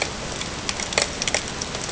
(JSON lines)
{"label": "ambient", "recorder": "HydroMoth"}